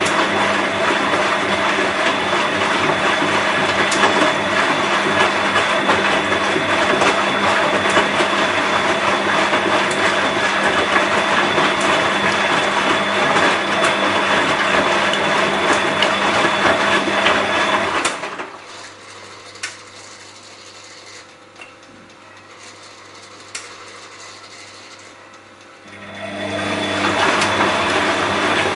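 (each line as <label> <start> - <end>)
A washing machine drum spinning. 0.0 - 18.3
Water pouring into a washing machine. 18.3 - 26.3
The drum of a washing machine spinning. 26.3 - 28.7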